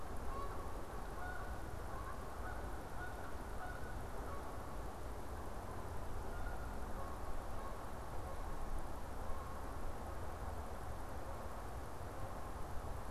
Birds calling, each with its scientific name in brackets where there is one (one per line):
Canada Goose (Branta canadensis)